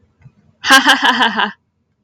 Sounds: Laughter